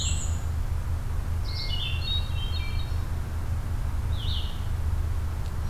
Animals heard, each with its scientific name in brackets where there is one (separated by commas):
Black-and-white Warbler (Mniotilta varia), Hermit Thrush (Catharus guttatus), Red-eyed Vireo (Vireo olivaceus)